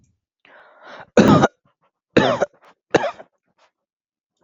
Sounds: Cough